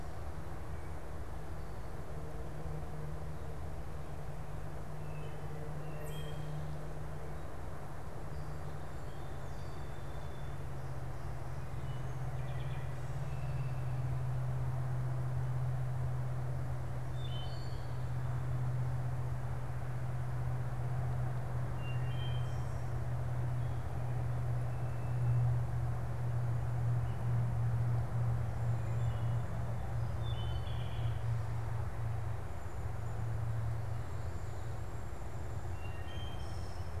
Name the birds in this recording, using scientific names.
Hylocichla mustelina, unidentified bird, Melospiza melodia